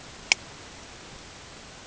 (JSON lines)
{"label": "ambient", "recorder": "HydroMoth"}